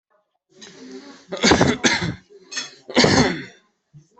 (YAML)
expert_labels:
- quality: good
  cough_type: dry
  dyspnea: false
  wheezing: false
  stridor: false
  choking: false
  congestion: false
  nothing: true
  diagnosis: upper respiratory tract infection
  severity: mild
age: 24
gender: male
respiratory_condition: true
fever_muscle_pain: false
status: COVID-19